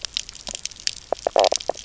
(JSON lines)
{"label": "biophony, knock croak", "recorder": "SoundTrap 300"}